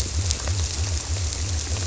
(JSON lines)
{"label": "biophony", "recorder": "SoundTrap 300"}